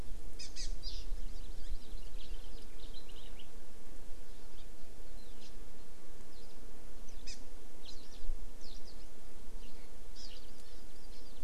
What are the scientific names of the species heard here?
Chlorodrepanis virens, Haemorhous mexicanus, Alauda arvensis